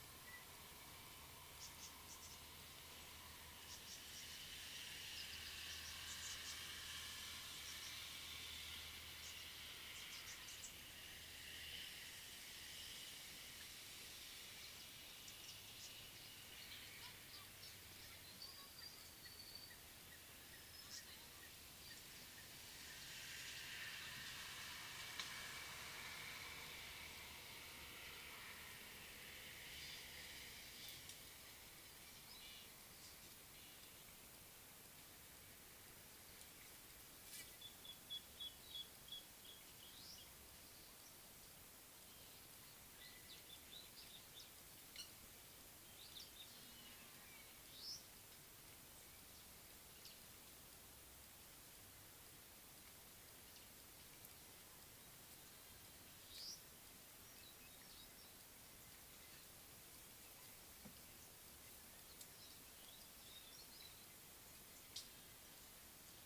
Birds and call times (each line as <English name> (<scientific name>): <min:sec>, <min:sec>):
Nubian Woodpecker (Campethera nubica): 0:38.5
Baglafecht Weaver (Ploceus baglafecht): 0:40.1, 0:47.9, 0:56.4